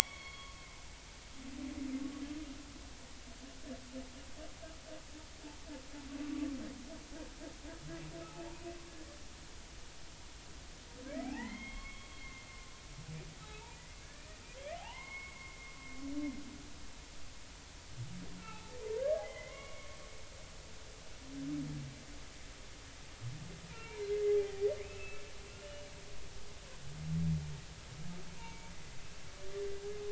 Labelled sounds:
0.0	0.5	humpback whale, 4.3 to 4.5 kHz
1.0	1.6	humpback whale, 1.0 to 3.4 kHz
11.2	12.5	humpback whale, 0.80 to 3.4 kHz
13.4	14.3	humpback whale, 0.86 to 3.9 kHz
14.6	15.7	humpback whale, 0.80 to 2.2 kHz
18.4	19.9	humpback whale, 0.80 to 4.0 kHz
24.1	24.4	humpback whale, 2.0 to 2.1 kHz
24.8	25.9	humpback whale, 2.0 to 3.0 kHz
28.4	28.7	humpback whale, 0.86 to 2.3 kHz

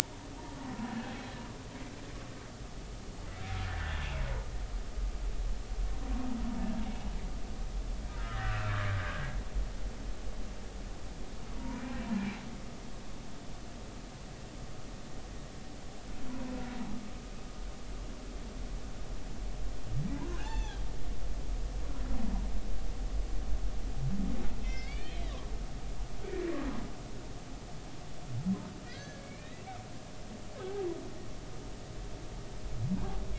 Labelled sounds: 3.6	4.0	humpback whale, 1.7 to 1.9 kHz
8.2	8.7	humpback whale, 1.2 to 2.7 kHz
9.1	9.4	humpback whale, 1.5 to 1.7 kHz
11.6	12.0	humpback whale, 0.90 to 2.4 kHz
20.3	20.8	humpback whale, 0.80 to 3.6 kHz
24.6	25.2	humpback whale, 2.0 to 5.3 kHz
28.9	29.6	humpback whale, 1.4 to 4.0 kHz
30.6	30.8	humpback whale, 1.5 to 1.7 kHz

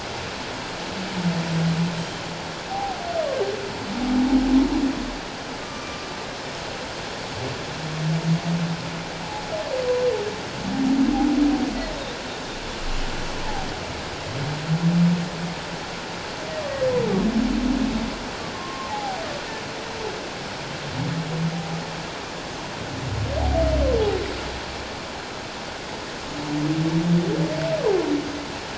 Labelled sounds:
2.7	3.0	humpback whale, 0.78 to 0.88 kHz
5.6	6.1	humpback whale, 1.1 to 1.2 kHz
18.5	19.2	humpback whale, 0.78 to 1.1 kHz

